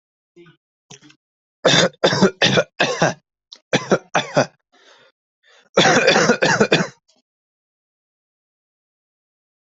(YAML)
expert_labels:
- quality: good
  cough_type: wet
  dyspnea: false
  wheezing: false
  stridor: false
  choking: false
  congestion: false
  nothing: true
  diagnosis: lower respiratory tract infection
  severity: mild
age: 28
gender: male
respiratory_condition: false
fever_muscle_pain: true
status: healthy